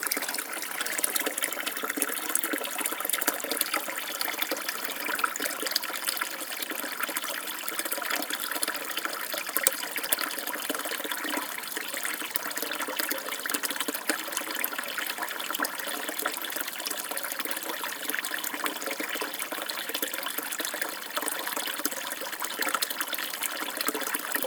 Is there something wet around?
yes